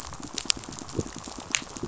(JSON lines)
{"label": "biophony, pulse", "recorder": "SoundTrap 500"}